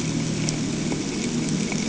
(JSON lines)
{"label": "anthrophony, boat engine", "recorder": "HydroMoth"}